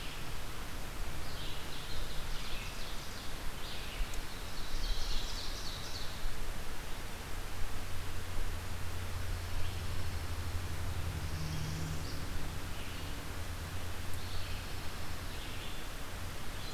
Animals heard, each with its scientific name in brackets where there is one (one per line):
Ovenbird (Seiurus aurocapilla)
Northern Parula (Setophaga americana)
Red-eyed Vireo (Vireo olivaceus)